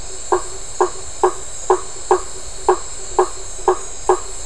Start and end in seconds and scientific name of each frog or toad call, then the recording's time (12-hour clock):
0.0	4.3	Boana faber
8:00pm